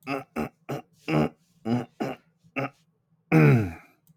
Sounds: Throat clearing